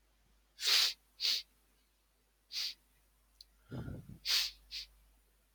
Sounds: Sniff